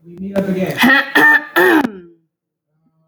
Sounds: Throat clearing